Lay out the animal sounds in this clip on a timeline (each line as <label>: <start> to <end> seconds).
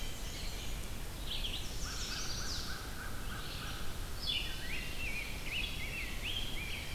Black-and-white Warbler (Mniotilta varia): 0.0 to 0.8 seconds
Red-eyed Vireo (Vireo olivaceus): 0.0 to 6.9 seconds
Chestnut-sided Warbler (Setophaga pensylvanica): 1.5 to 2.9 seconds
American Crow (Corvus brachyrhynchos): 1.7 to 4.0 seconds
Rose-breasted Grosbeak (Pheucticus ludovicianus): 4.4 to 6.9 seconds